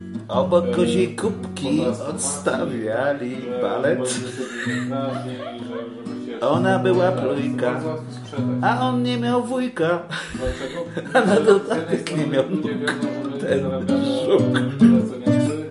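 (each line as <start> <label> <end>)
0.0 A man is singing. 15.7
0.7 Someone is speaking in the background. 15.7
5.0 A woman laughs in the background. 6.1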